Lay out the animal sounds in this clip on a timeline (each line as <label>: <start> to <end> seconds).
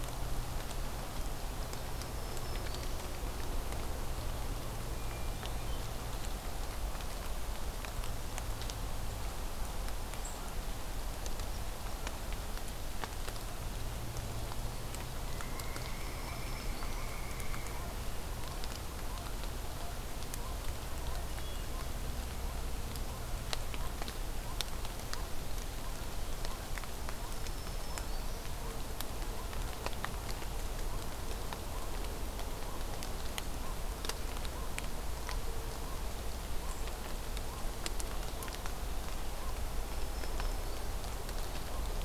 Black-throated Green Warbler (Setophaga virens): 1.7 to 3.1 seconds
Hermit Thrush (Catharus guttatus): 4.7 to 6.1 seconds
Pileated Woodpecker (Dryocopus pileatus): 15.2 to 17.8 seconds
Black-throated Green Warbler (Setophaga virens): 15.8 to 17.1 seconds
Hermit Thrush (Catharus guttatus): 21.2 to 22.0 seconds
Black-throated Green Warbler (Setophaga virens): 27.1 to 28.6 seconds
Black-throated Green Warbler (Setophaga virens): 39.6 to 41.2 seconds